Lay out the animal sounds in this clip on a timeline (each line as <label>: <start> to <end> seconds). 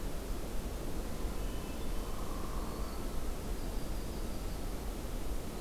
Hermit Thrush (Catharus guttatus): 1.2 to 2.4 seconds
Hairy Woodpecker (Dryobates villosus): 1.9 to 3.2 seconds
Black-throated Green Warbler (Setophaga virens): 2.5 to 3.2 seconds
Yellow-rumped Warbler (Setophaga coronata): 3.4 to 4.7 seconds